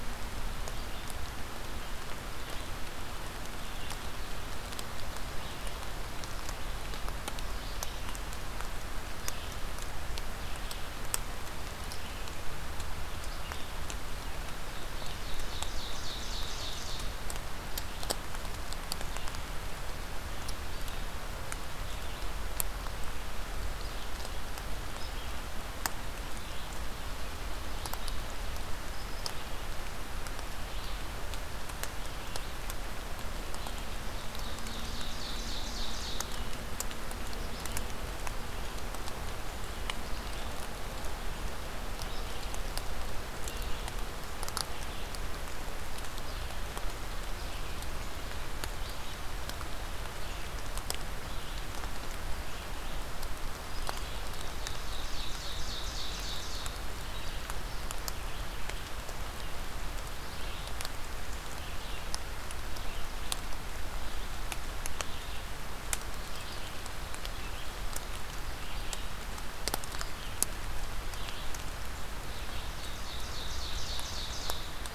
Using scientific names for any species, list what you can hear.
Vireo olivaceus, Seiurus aurocapilla